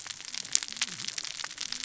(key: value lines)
label: biophony, cascading saw
recorder: SoundTrap 600 or HydroMoth